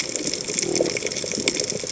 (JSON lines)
{"label": "biophony", "recorder": "HydroMoth"}